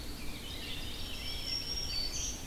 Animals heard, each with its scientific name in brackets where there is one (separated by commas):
Eastern Wood-Pewee (Contopus virens), Red-eyed Vireo (Vireo olivaceus), Black-throated Green Warbler (Setophaga virens), Veery (Catharus fuscescens), Blackburnian Warbler (Setophaga fusca)